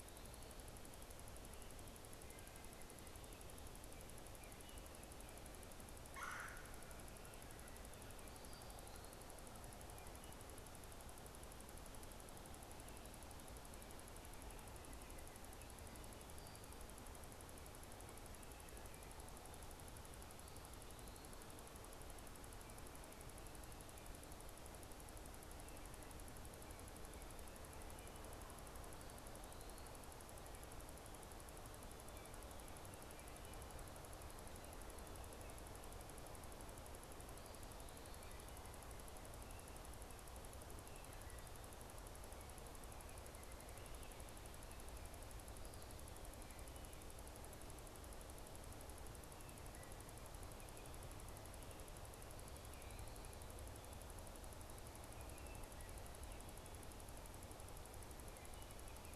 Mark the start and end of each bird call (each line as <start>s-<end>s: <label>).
6.0s-6.8s: Red-bellied Woodpecker (Melanerpes carolinus)